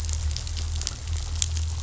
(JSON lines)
{"label": "anthrophony, boat engine", "recorder": "SoundTrap 500"}